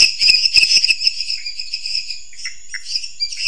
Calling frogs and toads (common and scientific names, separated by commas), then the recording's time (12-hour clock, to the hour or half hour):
lesser tree frog (Dendropsophus minutus), dwarf tree frog (Dendropsophus nanus), Pithecopus azureus
~11pm